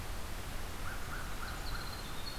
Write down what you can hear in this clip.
American Crow, Winter Wren